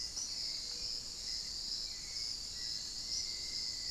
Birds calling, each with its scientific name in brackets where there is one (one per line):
Hauxwell's Thrush (Turdus hauxwelli)
Black-faced Antthrush (Formicarius analis)